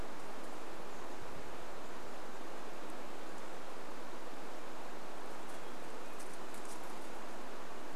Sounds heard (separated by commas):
Hermit Thrush song